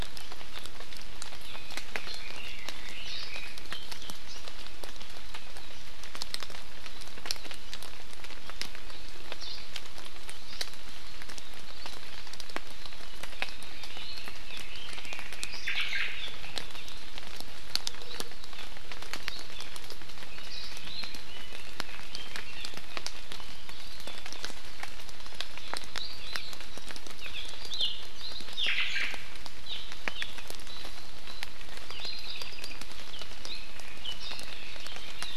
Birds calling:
Omao (Myadestes obscurus)
Iiwi (Drepanis coccinea)
Apapane (Himatione sanguinea)
Red-billed Leiothrix (Leiothrix lutea)

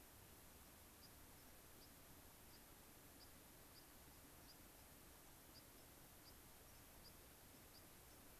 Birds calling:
White-crowned Sparrow (Zonotrichia leucophrys)

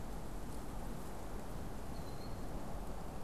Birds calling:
Killdeer (Charadrius vociferus)

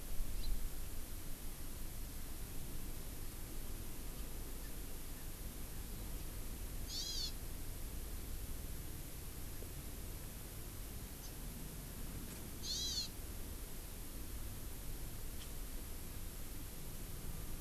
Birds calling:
House Finch (Haemorhous mexicanus)
Hawaii Amakihi (Chlorodrepanis virens)

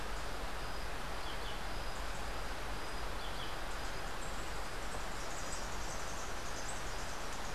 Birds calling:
Yellow-throated Euphonia (Euphonia hirundinacea)
Rufous-capped Warbler (Basileuterus rufifrons)

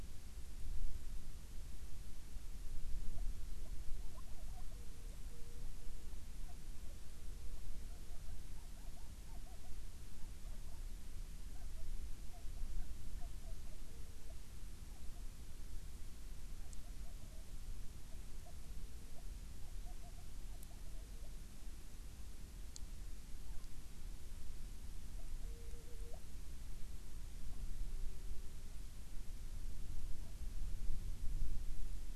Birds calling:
Hawaiian Petrel (Pterodroma sandwichensis)

